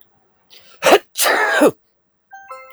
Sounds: Sneeze